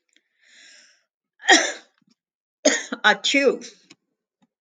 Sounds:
Sneeze